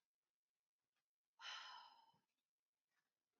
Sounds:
Sigh